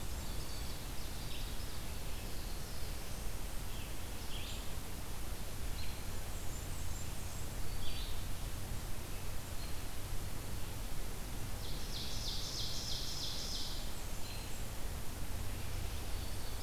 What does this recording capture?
Blackburnian Warbler, Ovenbird, Red-eyed Vireo, Black-throated Blue Warbler, Black-throated Green Warbler